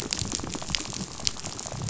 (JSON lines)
{"label": "biophony, rattle", "recorder": "SoundTrap 500"}